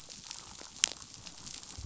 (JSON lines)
{"label": "biophony, damselfish", "recorder": "SoundTrap 500"}